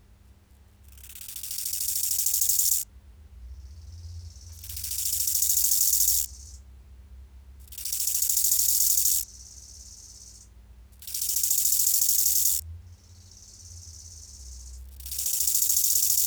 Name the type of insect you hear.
orthopteran